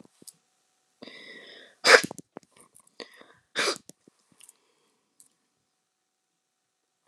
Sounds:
Sneeze